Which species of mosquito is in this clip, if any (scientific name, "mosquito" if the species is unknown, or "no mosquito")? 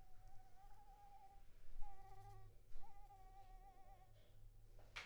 Anopheles arabiensis